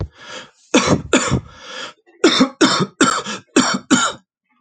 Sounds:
Cough